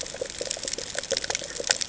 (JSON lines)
{"label": "ambient", "recorder": "HydroMoth"}